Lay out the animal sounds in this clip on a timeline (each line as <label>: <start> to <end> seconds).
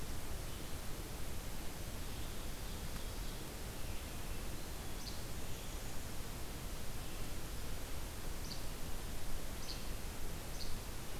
Ovenbird (Seiurus aurocapilla): 1.9 to 4.0 seconds
Least Flycatcher (Empidonax minimus): 5.0 to 5.2 seconds
Least Flycatcher (Empidonax minimus): 8.4 to 8.7 seconds
Least Flycatcher (Empidonax minimus): 9.6 to 9.9 seconds
Least Flycatcher (Empidonax minimus): 10.5 to 10.7 seconds